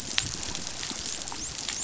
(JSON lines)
{"label": "biophony, dolphin", "recorder": "SoundTrap 500"}